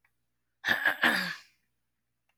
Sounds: Throat clearing